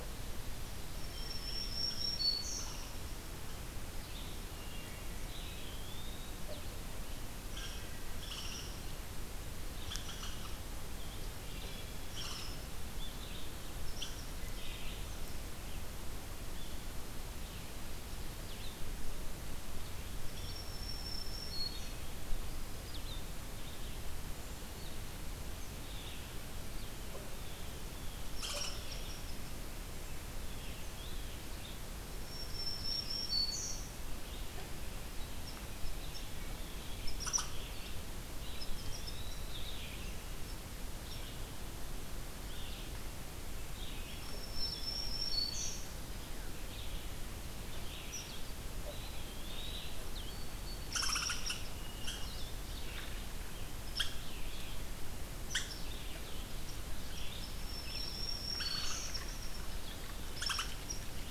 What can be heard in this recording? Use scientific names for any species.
Vireo solitarius, Setophaga virens, unknown mammal, Hylocichla mustelina, Contopus virens, Vireo olivaceus